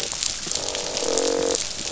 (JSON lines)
{"label": "biophony, croak", "recorder": "SoundTrap 500"}